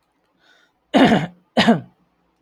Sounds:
Throat clearing